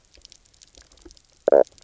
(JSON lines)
{"label": "biophony, knock croak", "recorder": "SoundTrap 300"}